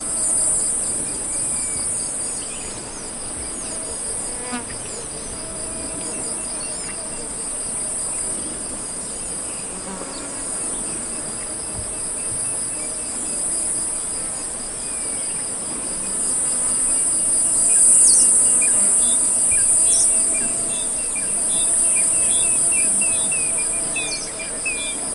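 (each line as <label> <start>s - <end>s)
Insects hissing in the distance, gradually increasing in intensity. 0.0s - 25.1s
An insect flying past at high speed. 4.4s - 4.9s
An insect is flying. 9.8s - 10.1s
A group of birds singing at regular intervals. 21.5s - 25.1s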